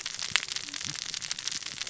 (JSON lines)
{"label": "biophony, cascading saw", "recorder": "SoundTrap 600 or HydroMoth"}